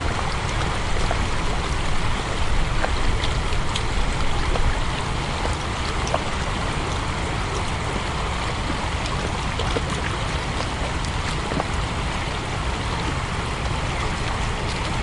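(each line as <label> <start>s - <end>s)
A river flowing. 0.0s - 15.0s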